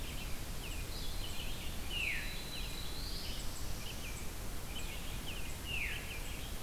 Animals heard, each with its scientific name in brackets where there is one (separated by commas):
Veery (Catharus fuscescens), Black-throated Blue Warbler (Setophaga caerulescens), Red-eyed Vireo (Vireo olivaceus), American Robin (Turdus migratorius)